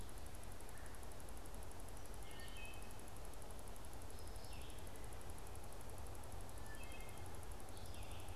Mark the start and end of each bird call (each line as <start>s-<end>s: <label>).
0.5s-1.1s: Red-bellied Woodpecker (Melanerpes carolinus)
1.9s-2.9s: Wood Thrush (Hylocichla mustelina)
4.2s-4.8s: Red-eyed Vireo (Vireo olivaceus)
6.4s-7.3s: Wood Thrush (Hylocichla mustelina)
7.6s-8.3s: Red-eyed Vireo (Vireo olivaceus)